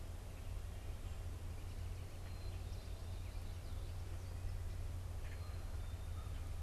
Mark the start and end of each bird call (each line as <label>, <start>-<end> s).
Black-capped Chickadee (Poecile atricapillus), 0.0-6.6 s
American Crow (Corvus brachyrhynchos), 5.2-6.4 s